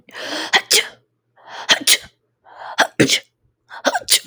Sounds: Sneeze